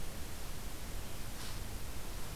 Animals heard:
forest ambience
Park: Katahdin Woods and Waters National Monument